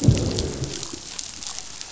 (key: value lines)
label: biophony, growl
recorder: SoundTrap 500